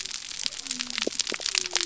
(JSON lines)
{"label": "biophony", "recorder": "SoundTrap 300"}